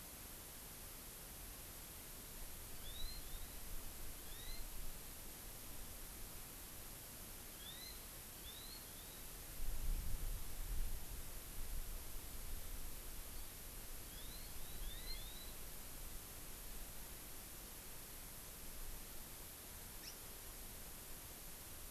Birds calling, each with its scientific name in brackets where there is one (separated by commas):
Hawaii Amakihi (Chlorodrepanis virens)